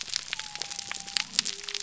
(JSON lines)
{"label": "biophony", "recorder": "SoundTrap 300"}